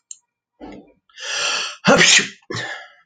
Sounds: Sneeze